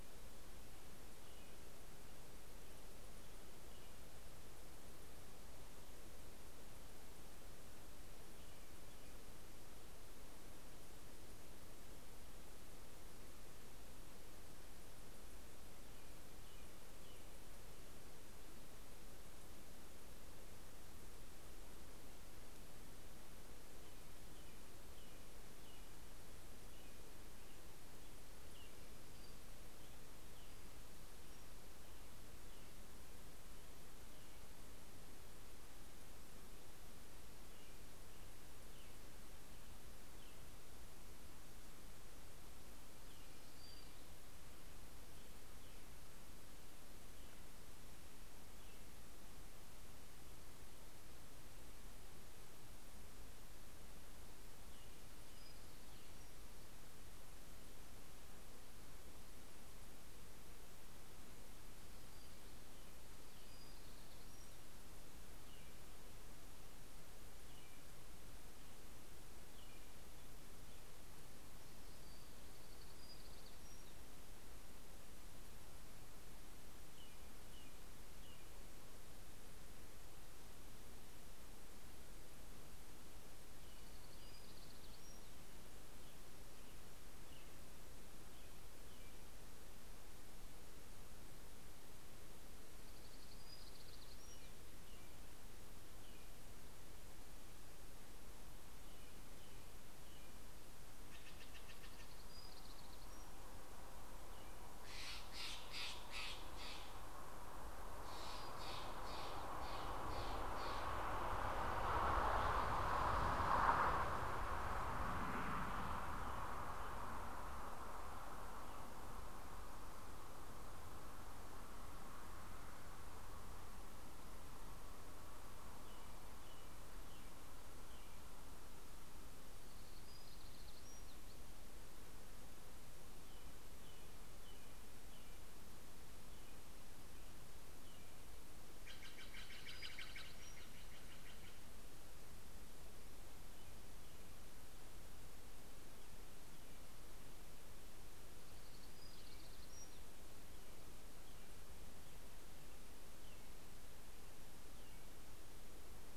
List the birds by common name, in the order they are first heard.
American Robin, Townsend's Warbler, Hermit Warbler, Steller's Jay